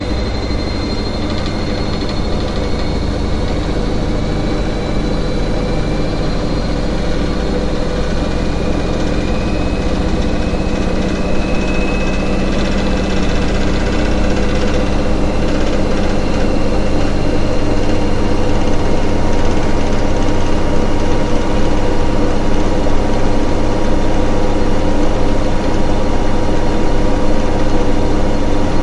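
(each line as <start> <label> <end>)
0.0 Mechanical sounds of a washing machine with the rumbling motor and swishing water. 28.8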